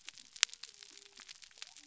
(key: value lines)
label: biophony
recorder: SoundTrap 300